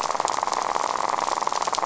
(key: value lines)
label: biophony, rattle
recorder: SoundTrap 500